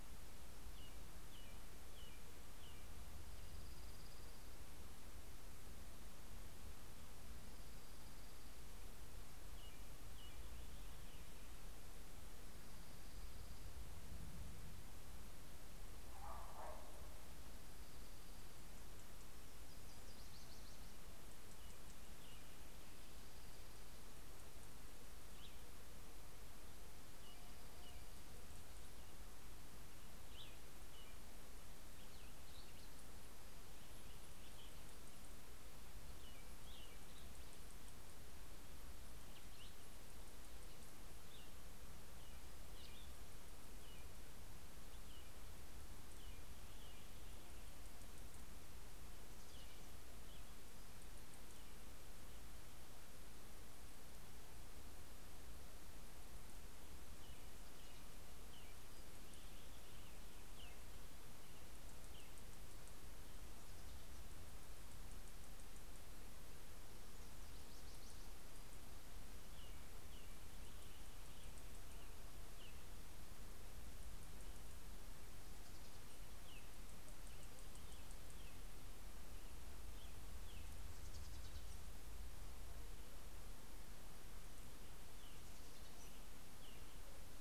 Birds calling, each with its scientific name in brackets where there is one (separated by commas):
Dark-eyed Junco (Junco hyemalis), Nashville Warbler (Leiothlypis ruficapilla), Cassin's Vireo (Vireo cassinii), American Robin (Turdus migratorius), Purple Finch (Haemorhous purpureus)